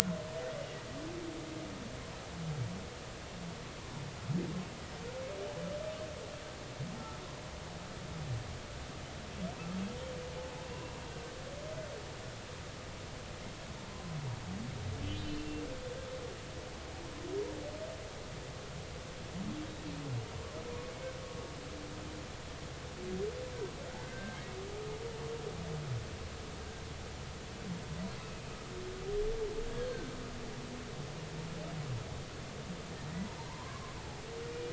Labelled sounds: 10.6	10.9	humpback whale, 2.7 to 2.8 kHz
15.1	15.6	humpback whale, 2.7 to 3.2 kHz
24.0	24.6	humpback whale, 1.5 to 2.2 kHz
33.4	34.0	humpback whale, 0.83 to 1.2 kHz

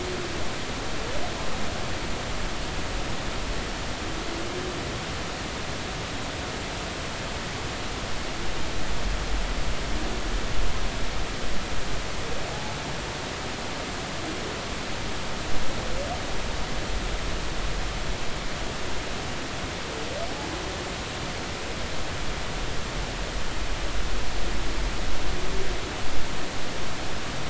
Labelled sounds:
12.5	12.8	humpback whale, 0.80 to 0.90 kHz

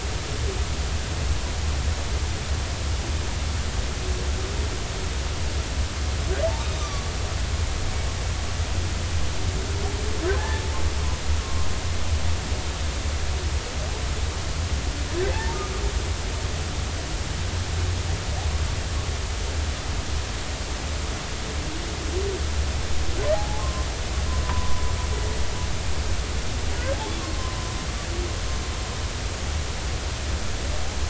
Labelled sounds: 6.6	7.1	humpback whale, 1.1 to 6.2 kHz
10.4	10.6	humpback whale, 0.80 to 1.9 kHz
11.4	11.7	humpback whale, 1.0 to 1.2 kHz
15.3	15.6	humpback whale, 0.80 to 0.99 kHz
23.3	23.9	humpback whale, 0.80 to 1.1 kHz
24.4	24.8	humpback whale, 0.93 to 1.1 kHz

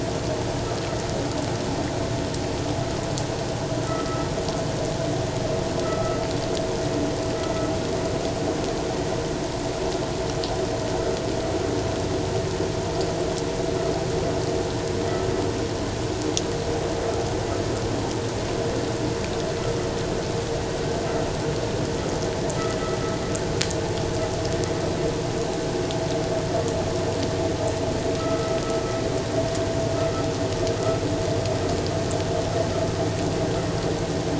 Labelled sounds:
3.9	4.3	vessel noise, 1.2 to 2.0 kHz
5.8	6.2	vessel noise, 1.2 to 1.4 kHz
28.2	28.6	vessel noise, 1.2 to 1.4 kHz

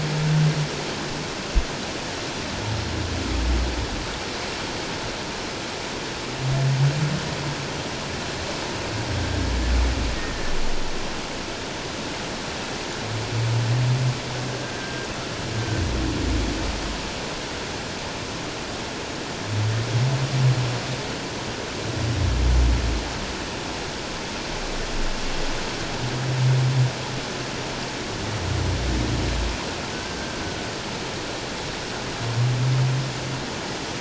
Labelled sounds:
10.2	10.5	humpback whale, 1.7 to 1.9 kHz
14.6	15.1	humpback whale, 1.5 to 1.7 kHz
29.9	30.4	humpback whale, 1.5 to 1.6 kHz

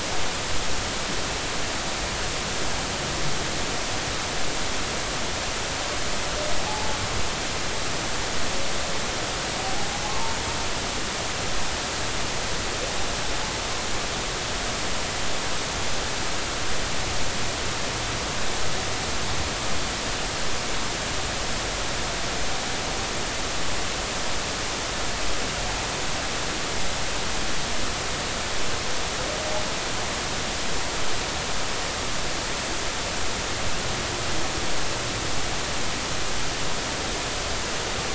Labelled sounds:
6.6	7.0	humpback whale, 0.80 to 0.93 kHz

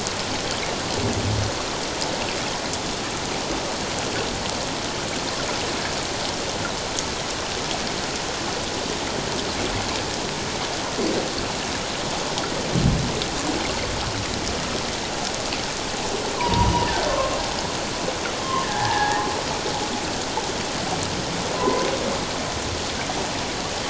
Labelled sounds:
16.3	17.4	humpback whale, 0.88 to 1.2 kHz
18.6	19.2	humpback whale, 0.78 to 1.9 kHz
21.6	21.9	humpback whale, 0.94 to 1.1 kHz

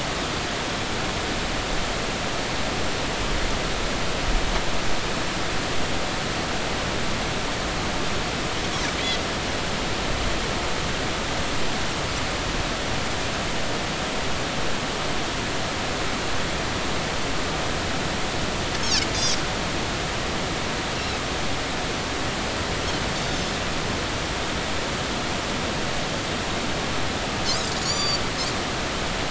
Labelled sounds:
19.1	19.4	Pacific white-sided dolphin, 4.6 to 5.0 kHz
27.8	28.2	Pacific white-sided dolphin, 3.4 to 7.1 kHz

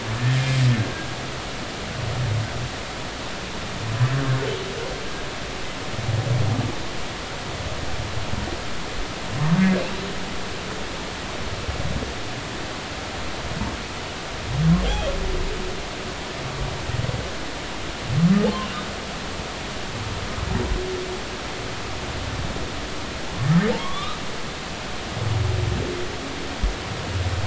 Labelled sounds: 0.8	1.1	humpback whale, 1.6 to 1.7 kHz
14.8	15.1	humpback whale, 3.1 to 3.4 kHz
23.4	24.2	humpback whale, 0.96 to 3.9 kHz

